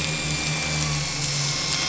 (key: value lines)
label: anthrophony, boat engine
recorder: SoundTrap 500